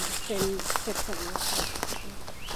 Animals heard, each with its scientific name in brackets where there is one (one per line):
Scarlet Tanager (Piranga olivacea)
Red-eyed Vireo (Vireo olivaceus)